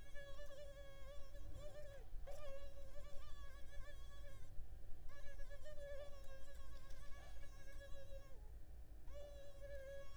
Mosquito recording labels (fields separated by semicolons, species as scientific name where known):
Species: Culex pipiens complex; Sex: female; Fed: unfed; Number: one; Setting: cup